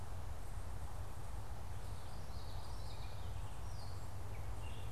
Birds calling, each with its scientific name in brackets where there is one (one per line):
Gray Catbird (Dumetella carolinensis)
Common Yellowthroat (Geothlypis trichas)